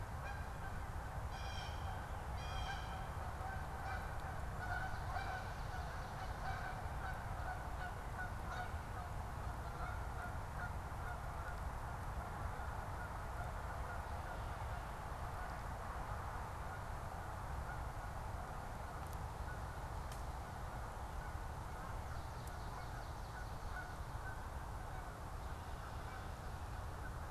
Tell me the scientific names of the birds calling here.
Cyanocitta cristata, Branta canadensis